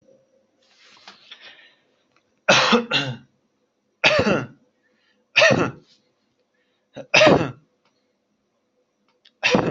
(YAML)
expert_labels:
- quality: good
  cough_type: dry
  dyspnea: false
  wheezing: false
  stridor: false
  choking: false
  congestion: false
  nothing: true
  diagnosis: upper respiratory tract infection
  severity: mild
age: 21
gender: other
respiratory_condition: true
fever_muscle_pain: true
status: symptomatic